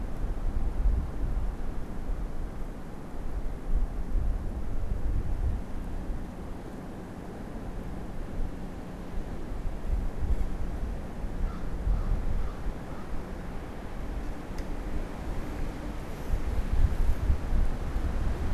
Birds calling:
American Crow (Corvus brachyrhynchos)

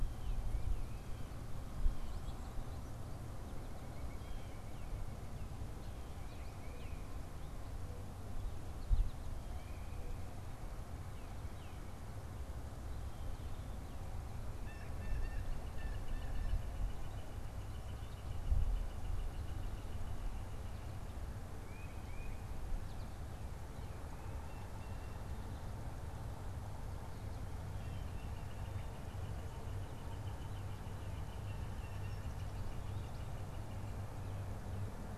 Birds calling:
White-breasted Nuthatch (Sitta carolinensis)
unidentified bird
Blue Jay (Cyanocitta cristata)
Northern Flicker (Colaptes auratus)
Tufted Titmouse (Baeolophus bicolor)

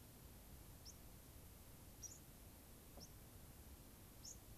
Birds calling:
White-crowned Sparrow (Zonotrichia leucophrys)

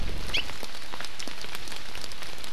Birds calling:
Hawaii Amakihi (Chlorodrepanis virens)

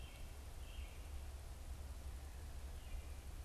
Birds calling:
American Robin (Turdus migratorius)

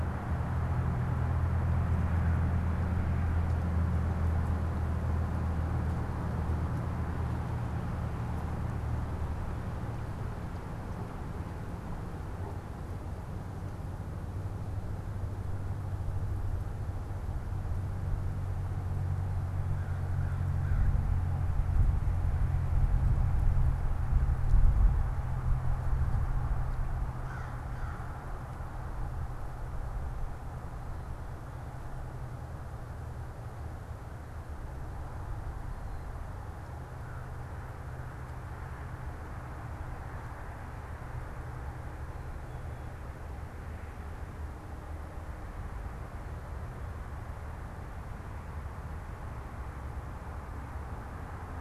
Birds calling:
American Crow (Corvus brachyrhynchos)

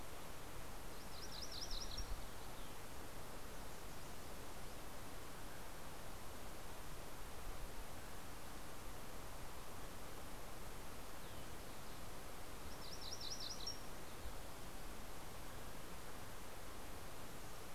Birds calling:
MacGillivray's Warbler (Geothlypis tolmiei)

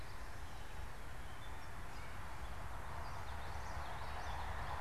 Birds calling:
Gray Catbird (Dumetella carolinensis)
Common Yellowthroat (Geothlypis trichas)
Northern Cardinal (Cardinalis cardinalis)

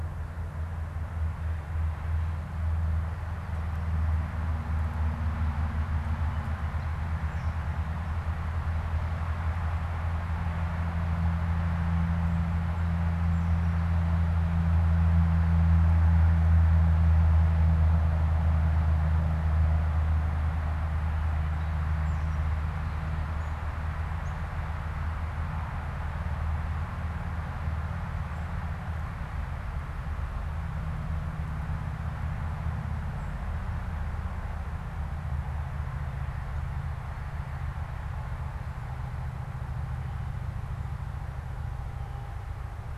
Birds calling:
unidentified bird

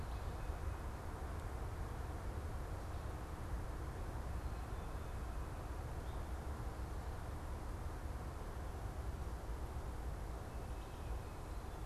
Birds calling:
Tufted Titmouse (Baeolophus bicolor)

